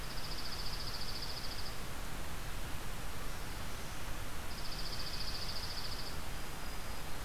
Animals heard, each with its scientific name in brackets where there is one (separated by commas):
Dark-eyed Junco (Junco hyemalis), Black-throated Green Warbler (Setophaga virens)